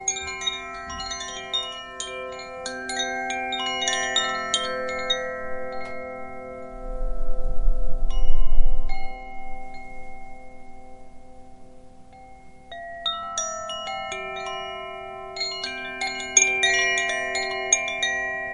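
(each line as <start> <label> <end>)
0.0 A wind chime produces relaxing ringing bell sounds that fade away. 12.2
12.3 Wind chime bells produce a high-pitched sound. 18.5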